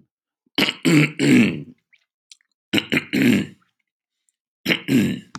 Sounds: Throat clearing